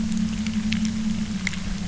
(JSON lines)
{"label": "anthrophony, boat engine", "recorder": "SoundTrap 300"}